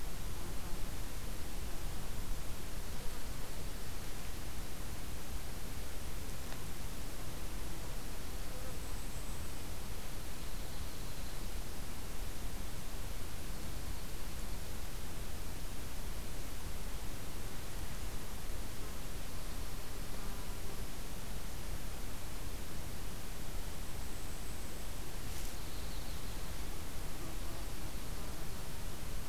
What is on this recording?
Golden-crowned Kinglet, Yellow-rumped Warbler